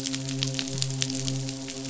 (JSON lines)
{"label": "biophony, midshipman", "recorder": "SoundTrap 500"}